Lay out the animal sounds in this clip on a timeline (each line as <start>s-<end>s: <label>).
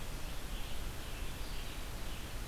0.0s-2.5s: Red-eyed Vireo (Vireo olivaceus)